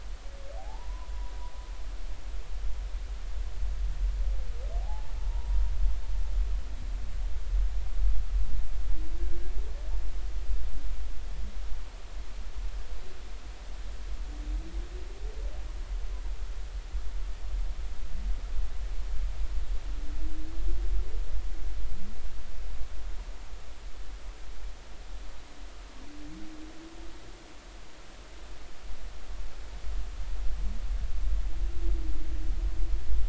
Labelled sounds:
0.6	1.3	humpback whale, 0.80 to 1.1 kHz
4.8	5.6	humpback whale, 0.80 to 0.99 kHz

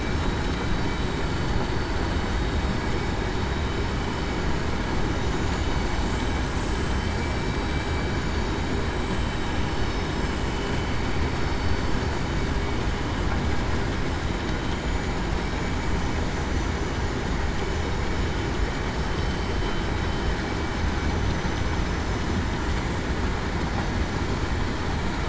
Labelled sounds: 6.0	7.0	vessel noise, 7.5 to 7.7 kHz
14.7	15.1	vessel noise, 6.9 to 7.0 kHz
16.3	16.9	vessel noise, 5.9 to 6.1 kHz

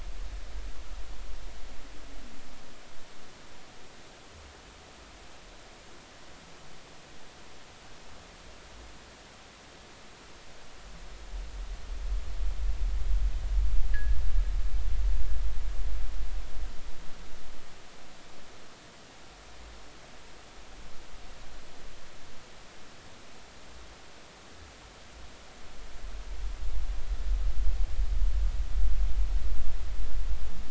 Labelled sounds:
13.9	14.2	fishing gear, 1.6 to 2.0 kHz

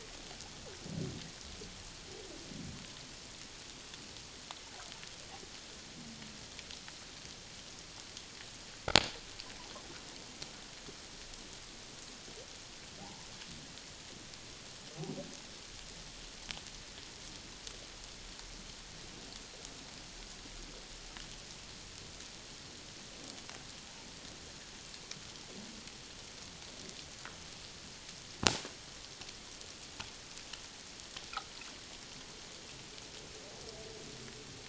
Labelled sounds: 13.0	13.3	humpback whale, 0.78 to 1.0 kHz

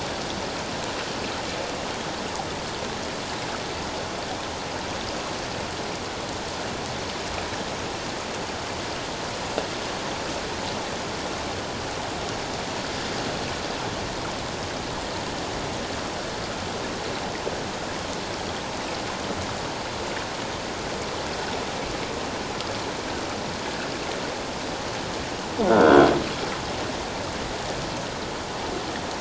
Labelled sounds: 25.7	26.1	croaking sound likely from a nearby submerged object, 1.3 to 3.4 kHz

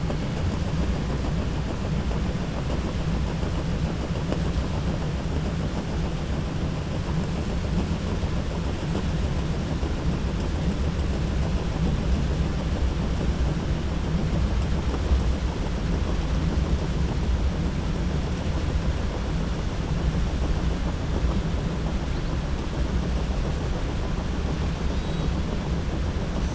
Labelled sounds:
24.8	25.3	killer whale, 3.3 to 4.9 kHz

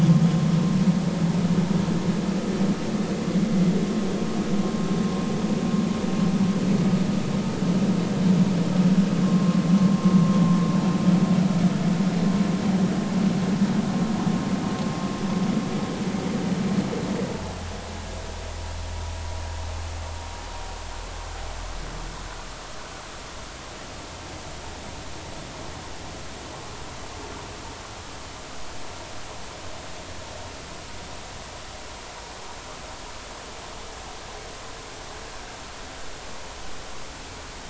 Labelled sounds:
9.2	9.6	vessel noise, 1.0 to 1.2 kHz

